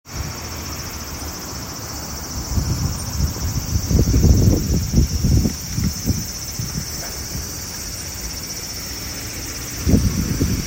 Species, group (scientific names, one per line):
Graptopsaltria nigrofuscata
Cicadidae